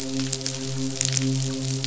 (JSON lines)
{"label": "biophony, midshipman", "recorder": "SoundTrap 500"}